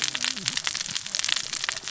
{"label": "biophony, cascading saw", "recorder": "SoundTrap 600 or HydroMoth"}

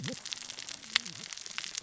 {"label": "biophony, cascading saw", "recorder": "SoundTrap 600 or HydroMoth"}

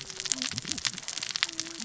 {"label": "biophony, cascading saw", "recorder": "SoundTrap 600 or HydroMoth"}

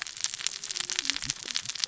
{"label": "biophony, cascading saw", "recorder": "SoundTrap 600 or HydroMoth"}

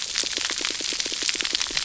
{"label": "biophony, pulse", "recorder": "SoundTrap 300"}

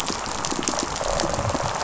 {"label": "biophony, rattle response", "recorder": "SoundTrap 500"}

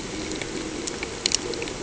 {"label": "anthrophony, boat engine", "recorder": "HydroMoth"}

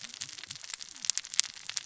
{"label": "biophony, cascading saw", "recorder": "SoundTrap 600 or HydroMoth"}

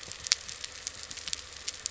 {"label": "anthrophony, boat engine", "recorder": "SoundTrap 300"}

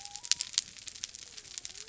{"label": "biophony", "recorder": "SoundTrap 300"}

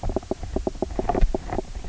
{"label": "biophony, knock croak", "recorder": "SoundTrap 300"}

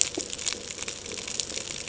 {"label": "ambient", "recorder": "HydroMoth"}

